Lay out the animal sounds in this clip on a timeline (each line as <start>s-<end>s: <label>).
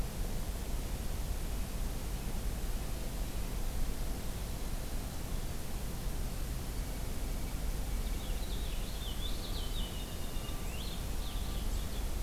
6.6s-8.4s: Blue Jay (Cyanocitta cristata)
7.8s-12.1s: Purple Finch (Haemorhous purpureus)